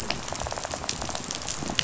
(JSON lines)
{"label": "biophony, rattle", "recorder": "SoundTrap 500"}